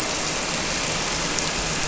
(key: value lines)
label: anthrophony, boat engine
recorder: SoundTrap 300